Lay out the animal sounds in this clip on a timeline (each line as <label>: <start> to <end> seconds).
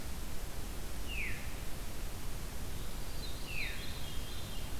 Veery (Catharus fuscescens): 1.0 to 1.4 seconds
Veery (Catharus fuscescens): 2.7 to 4.8 seconds